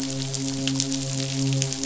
{"label": "biophony, midshipman", "recorder": "SoundTrap 500"}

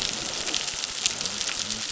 {"label": "biophony", "recorder": "SoundTrap 600"}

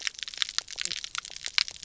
{"label": "biophony, knock croak", "recorder": "SoundTrap 300"}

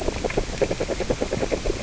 {"label": "biophony, grazing", "recorder": "SoundTrap 600 or HydroMoth"}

